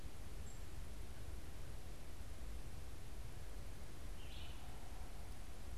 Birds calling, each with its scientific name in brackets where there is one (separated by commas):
unidentified bird, Red-eyed Vireo (Vireo olivaceus)